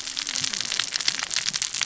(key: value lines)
label: biophony, cascading saw
recorder: SoundTrap 600 or HydroMoth